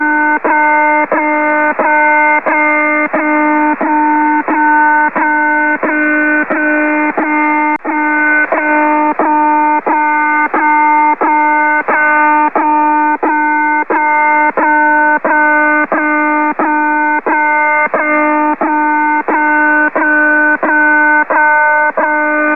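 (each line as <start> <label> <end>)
0.0 A loud alarm repeatedly sounds. 22.6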